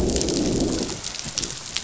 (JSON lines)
{"label": "biophony, growl", "recorder": "SoundTrap 500"}